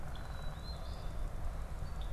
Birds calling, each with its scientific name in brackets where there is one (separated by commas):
Black-capped Chickadee (Poecile atricapillus), Eastern Phoebe (Sayornis phoebe)